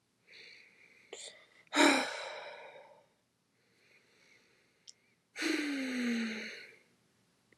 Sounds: Sigh